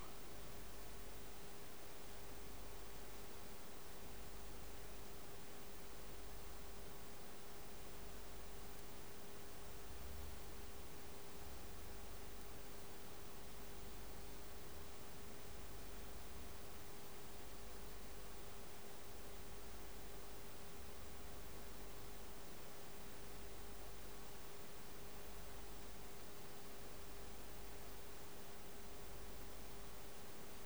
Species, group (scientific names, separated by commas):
Poecilimon hamatus, Orthoptera